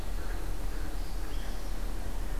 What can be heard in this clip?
Downy Woodpecker, Blue-headed Vireo, Northern Parula